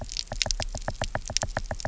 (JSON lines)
{"label": "biophony, knock", "recorder": "SoundTrap 300"}